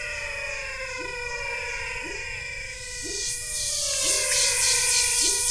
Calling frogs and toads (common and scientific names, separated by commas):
menwig frog (Physalaemus albonotatus), pepper frog (Leptodactylus labyrinthicus), pointedbelly frog (Leptodactylus podicipinus)